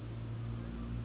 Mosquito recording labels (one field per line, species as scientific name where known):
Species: Anopheles gambiae s.s.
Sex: female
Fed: unfed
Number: one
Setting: insect culture